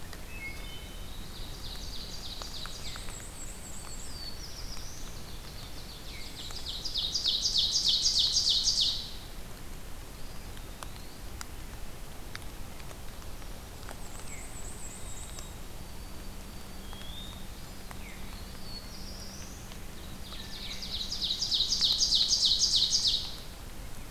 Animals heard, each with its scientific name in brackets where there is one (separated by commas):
White-throated Sparrow (Zonotrichia albicollis), Black-throated Blue Warbler (Setophaga caerulescens), Black-and-white Warbler (Mniotilta varia), Ovenbird (Seiurus aurocapilla), Wood Thrush (Hylocichla mustelina), Eastern Wood-Pewee (Contopus virens), Veery (Catharus fuscescens)